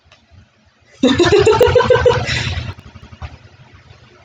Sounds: Laughter